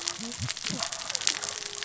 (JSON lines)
{"label": "biophony, cascading saw", "recorder": "SoundTrap 600 or HydroMoth"}